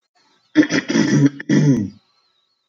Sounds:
Throat clearing